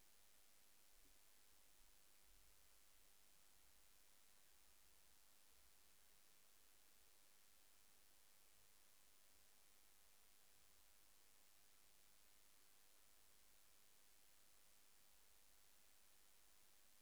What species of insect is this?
Eupholidoptera schmidti